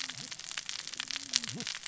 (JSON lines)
{"label": "biophony, cascading saw", "recorder": "SoundTrap 600 or HydroMoth"}